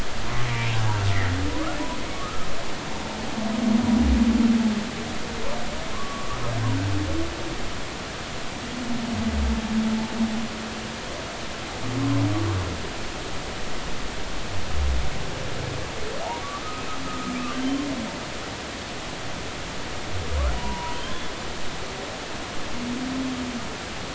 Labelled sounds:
0.4	0.7	humpback whale, 2.2 to 2.4 kHz
1.1	2.5	humpback whale, 1.1 to 2.2 kHz
5.9	6.4	humpback whale, 0.99 to 1.3 kHz
12.0	12.3	humpback whale, 0.96 to 1.1 kHz
17.1	17.6	humpback whale, 1.2 to 2.9 kHz
20.6	21.0	humpback whale, 0.83 to 1.0 kHz

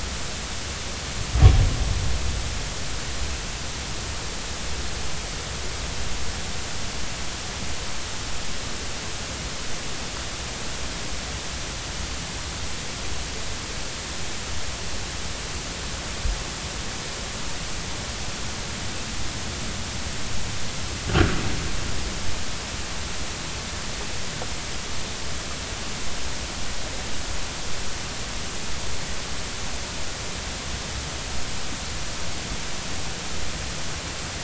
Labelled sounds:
21.1	21.3	impulsive sound most probably from a breaching whale, 1.3 to 1.7 kHz

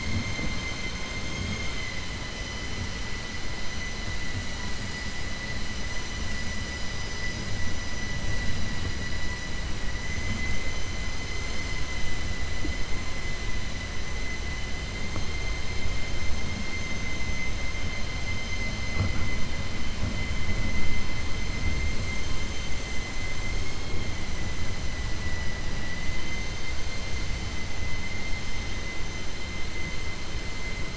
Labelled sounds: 1.2	1.9	vessel noise, 1.3 to 7.1 kHz

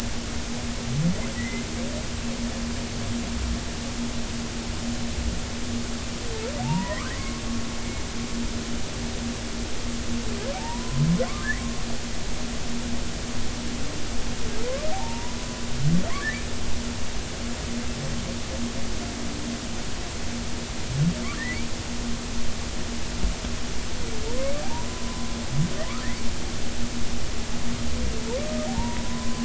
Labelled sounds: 1.4	1.6	humpback whale, 1.9 to 2.1 kHz
6.6	7.4	humpback whale, 0.80 to 2.3 kHz
10.5	11.1	humpback whale, 0.80 to 1.1 kHz
14.9	16.4	humpback whale, 0.80 to 2.0 kHz
21.3	21.7	humpback whale, 1.6 to 2.4 kHz
24.7	25.3	humpback whale, 0.86 to 1.1 kHz
28.7	29.4	humpback whale, 0.80 to 1.1 kHz

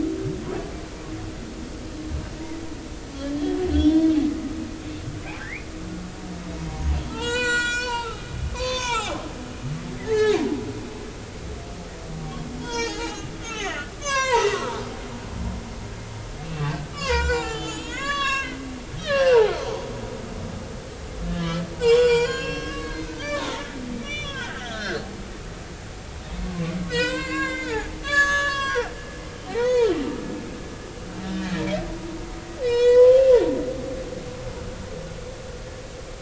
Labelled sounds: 3.7	4.1	humpback whale, 3.2 to 3.6 kHz
5.4	5.7	humpback whale, 1.5 to 2.6 kHz
6.7	8.3	humpback whale, 0.83 to 8.0 kHz
8.5	10.5	humpback whale, 0.80 to 6.7 kHz
12.6	14.8	humpback whale, 0.80 to 7.3 kHz
16.4	18.6	humpback whale, 0.80 to 7.5 kHz
19.0	19.5	humpback whale, 0.80 to 3.9 kHz
21.2	25.0	humpback whale, 0.86 to 7.2 kHz
26.4	30.0	humpback whale, 0.80 to 7.0 kHz
32.6	33.2	humpback whale, 0.90 to 7.4 kHz

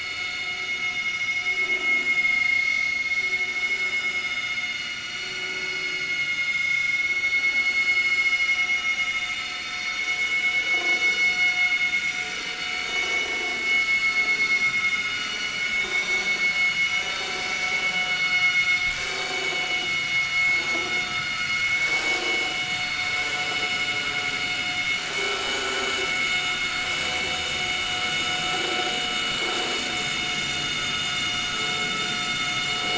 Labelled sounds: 2.1	2.9	vessel noise, 2.0 to 5.9 kHz
3.3	3.6	vessel noise, 6.5 to 6.7 kHz
6.3	7.8	vessel noise, 2.1 to 6.4 kHz
9.6	10.9	vessel noise, 5.2 to 6.6 kHz
11.3	11.6	vessel noise, 1.4 to 1.5 kHz
12.9	15.5	vessel noise, 3.6 to 6.0 kHz
15.9	16.3	vessel noise, 5.8 to 6.7 kHz
18.1	20.3	vessel noise, 1.2 to 7.3 kHz
21.9	23.0	vessel noise, 0.80 to 7.5 kHz
25.5	25.9	vessel noise, 6.6 to 6.8 kHz
30.1	31.6	vessel noise, 5.0 to 6.5 kHz

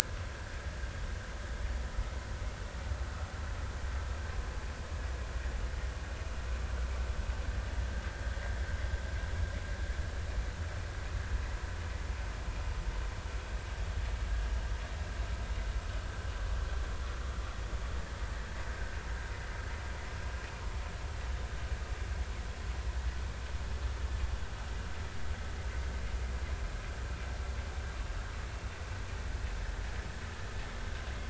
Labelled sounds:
1.0	1.6	vessel noise, 1.4 to 1.8 kHz

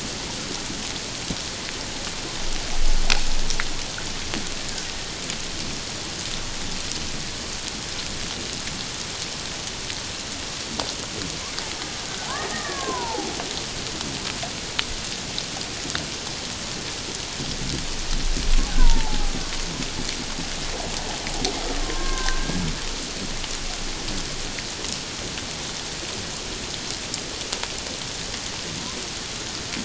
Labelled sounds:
12.3	13.3	killer whale, Bigg's (transient), 0.78 to 1.9 kHz
18.8	19.3	killer whale, Bigg's (transient), 0.78 to 1.1 kHz
21.8	22.6	killer whale, Bigg's (transient), 0.97 to 2.0 kHz

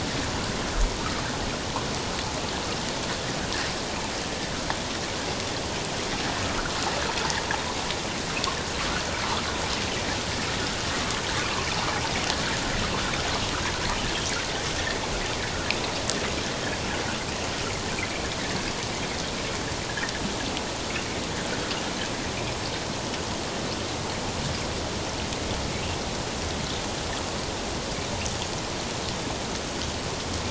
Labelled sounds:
11.4	11.7	water noise, 0.94 to 1.2 kHz

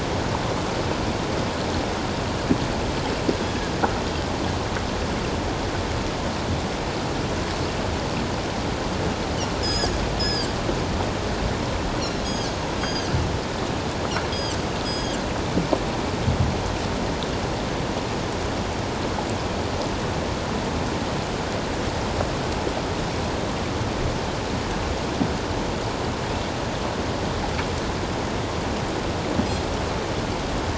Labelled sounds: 9.6	10.5	Pacific white-sided dolphin, 1.4 to 6.9 kHz
12.0	13.1	Pacific white-sided dolphin, 3.1 to 8.0 kHz
14.3	14.6	Pacific white-sided dolphin, 2.9 to 7.9 kHz
14.8	15.2	Pacific white-sided dolphin, 3.1 to 8.0 kHz

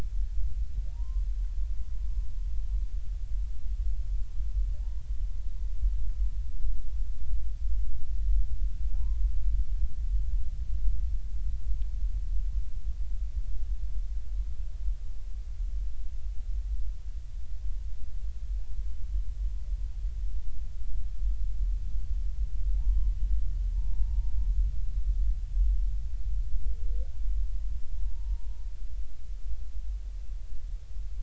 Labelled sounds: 0.9	1.3	humpback whale, 0.86 to 1.1 kHz
4.8	5.0	humpback whale, 0.80 to 1.0 kHz
8.9	9.3	humpback whale, 0.80 to 1.1 kHz
22.8	23.1	humpback whale, 0.83 to 1.1 kHz
23.7	24.3	humpback whale, 0.86 to 0.99 kHz
27.9	28.6	humpback whale, 0.86 to 0.96 kHz

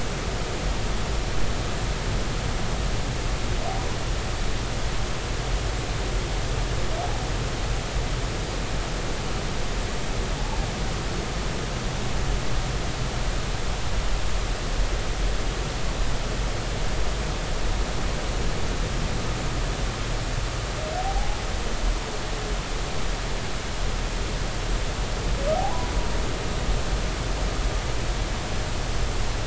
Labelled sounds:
21.0	21.4	humpback whale, 0.80 to 0.86 kHz
25.5	25.9	humpback whale, 0.80 to 1.1 kHz

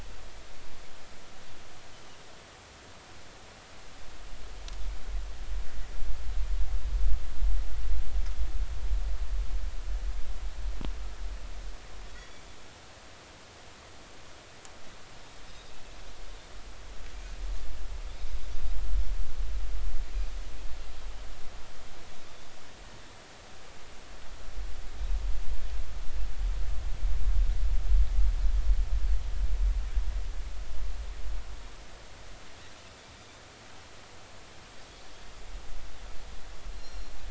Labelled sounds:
12.2	12.4	Pacific white-sided dolphin, 3.3 to 3.5 kHz
15.5	15.7	Pacific white-sided dolphin, 3.6 to 3.9 kHz
36.8	37.1	Pacific white-sided dolphin, 4.0 to 5.7 kHz

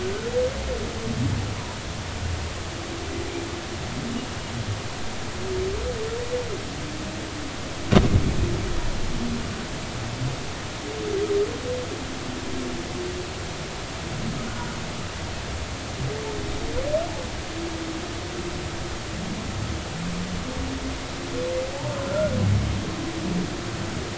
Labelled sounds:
14.5	14.8	humpback whale, 1.4 to 1.5 kHz
22.1	22.4	humpback whale, 1.3 to 1.5 kHz

